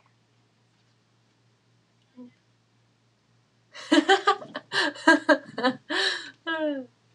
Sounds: Laughter